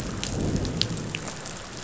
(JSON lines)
{"label": "biophony, growl", "recorder": "SoundTrap 500"}